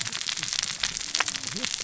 {"label": "biophony, cascading saw", "recorder": "SoundTrap 600 or HydroMoth"}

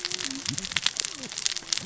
{"label": "biophony, cascading saw", "recorder": "SoundTrap 600 or HydroMoth"}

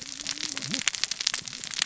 {"label": "biophony, cascading saw", "recorder": "SoundTrap 600 or HydroMoth"}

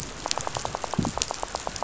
{"label": "biophony, rattle", "recorder": "SoundTrap 500"}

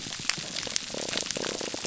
{"label": "biophony", "recorder": "SoundTrap 300"}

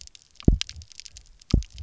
{"label": "biophony, double pulse", "recorder": "SoundTrap 300"}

